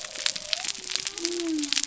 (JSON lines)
{"label": "biophony", "recorder": "SoundTrap 300"}